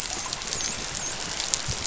{"label": "biophony, dolphin", "recorder": "SoundTrap 500"}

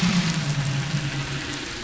{"label": "anthrophony, boat engine", "recorder": "SoundTrap 500"}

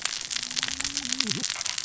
{"label": "biophony, cascading saw", "recorder": "SoundTrap 600 or HydroMoth"}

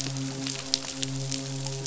{"label": "biophony, midshipman", "recorder": "SoundTrap 500"}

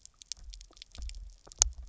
{"label": "biophony, double pulse", "recorder": "SoundTrap 300"}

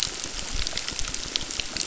{"label": "biophony, crackle", "recorder": "SoundTrap 600"}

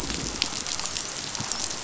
{"label": "biophony, dolphin", "recorder": "SoundTrap 500"}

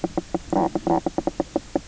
{"label": "biophony, knock croak", "recorder": "SoundTrap 300"}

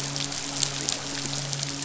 {"label": "biophony, midshipman", "recorder": "SoundTrap 500"}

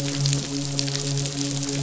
{"label": "biophony, midshipman", "recorder": "SoundTrap 500"}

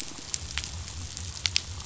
{"label": "biophony", "recorder": "SoundTrap 500"}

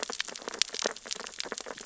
{"label": "biophony, sea urchins (Echinidae)", "recorder": "SoundTrap 600 or HydroMoth"}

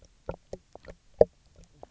{"label": "biophony, knock croak", "recorder": "SoundTrap 300"}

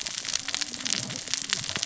{"label": "biophony, cascading saw", "recorder": "SoundTrap 600 or HydroMoth"}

